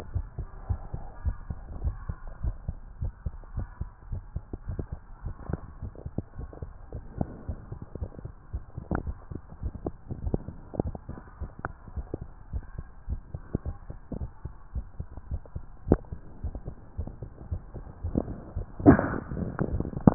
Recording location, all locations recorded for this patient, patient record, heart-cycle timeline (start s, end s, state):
tricuspid valve (TV)
aortic valve (AV)+pulmonary valve (PV)+tricuspid valve (TV)+mitral valve (MV)
#Age: Adolescent
#Sex: Male
#Height: nan
#Weight: nan
#Pregnancy status: False
#Murmur: Absent
#Murmur locations: nan
#Most audible location: nan
#Systolic murmur timing: nan
#Systolic murmur shape: nan
#Systolic murmur grading: nan
#Systolic murmur pitch: nan
#Systolic murmur quality: nan
#Diastolic murmur timing: nan
#Diastolic murmur shape: nan
#Diastolic murmur grading: nan
#Diastolic murmur pitch: nan
#Diastolic murmur quality: nan
#Outcome: Normal
#Campaign: 2015 screening campaign
0.00	0.10	diastole
0.10	0.28	S1
0.28	0.38	systole
0.38	0.48	S2
0.48	0.68	diastole
0.68	0.82	S1
0.82	0.90	systole
0.90	1.00	S2
1.00	1.20	diastole
1.20	1.38	S1
1.38	1.48	systole
1.48	1.60	S2
1.60	1.80	diastole
1.80	1.96	S1
1.96	2.04	systole
2.04	2.16	S2
2.16	2.42	diastole
2.42	2.58	S1
2.58	2.66	systole
2.66	2.76	S2
2.76	3.00	diastole
3.00	3.14	S1
3.14	3.22	systole
3.22	3.34	S2
3.34	3.54	diastole
3.54	3.68	S1
3.68	3.78	systole
3.78	3.90	S2
3.90	4.10	diastole
4.10	4.24	S1
4.24	4.34	systole
4.34	4.44	S2
4.44	4.68	diastole
4.68	4.86	S1
4.86	4.92	systole
4.92	5.00	S2
5.00	5.24	diastole
5.24	5.34	S1
5.34	5.46	systole
5.46	5.60	S2
5.60	5.84	diastole
5.84	5.94	S1
5.94	6.04	systole
6.04	6.14	S2
6.14	6.38	diastole
6.38	6.50	S1
6.50	6.62	systole
6.62	6.72	S2
6.72	6.94	diastole
6.94	7.04	S1
7.04	7.18	systole
7.18	7.28	S2
7.28	7.50	diastole
7.50	7.60	S1
7.60	7.70	systole
7.70	7.78	S2
7.78	8.00	diastole
8.00	8.10	S1
8.10	8.22	systole
8.22	8.32	S2
8.32	8.52	diastole
8.52	8.62	S1
8.62	8.74	systole
8.74	8.82	S2
8.82	9.04	diastole
9.04	9.16	S1
9.16	9.30	systole
9.30	9.40	S2
9.40	9.64	diastole
9.64	9.74	S1
9.74	9.84	systole
9.84	9.96	S2
9.96	10.24	diastole
10.24	10.36	S1
10.36	10.46	systole
10.46	10.56	S2
10.56	10.80	diastole
10.80	10.94	S1
10.94	11.08	systole
11.08	11.16	S2
11.16	11.40	diastole
11.40	11.50	S1
11.50	11.64	systole
11.64	11.74	S2
11.74	11.96	diastole
11.96	12.08	S1
12.08	12.20	systole
12.20	12.30	S2
12.30	12.52	diastole
12.52	12.64	S1
12.64	12.76	systole
12.76	12.86	S2
12.86	13.10	diastole
13.10	13.22	S1
13.22	13.34	systole
13.34	13.44	S2
13.44	13.66	diastole
13.66	13.76	S1
13.76	13.88	systole
13.88	13.98	S2
13.98	14.20	diastole
14.20	14.30	S1
14.30	14.44	systole
14.44	14.54	S2
14.54	14.76	diastole
14.76	14.86	S1
14.86	14.98	systole
14.98	15.08	S2
15.08	15.30	diastole
15.30	15.42	S1
15.42	15.54	systole
15.54	15.64	S2
15.64	15.88	diastole